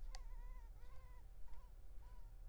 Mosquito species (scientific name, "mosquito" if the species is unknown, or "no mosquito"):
Culex pipiens complex